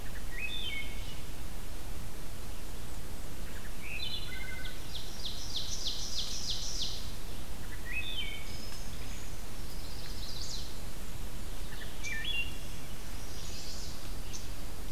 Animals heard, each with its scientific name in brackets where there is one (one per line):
Black-and-white Warbler (Mniotilta varia)
Wood Thrush (Hylocichla mustelina)
Chestnut-sided Warbler (Setophaga pensylvanica)
unidentified call
Ovenbird (Seiurus aurocapilla)